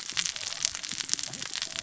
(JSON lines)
{"label": "biophony, cascading saw", "recorder": "SoundTrap 600 or HydroMoth"}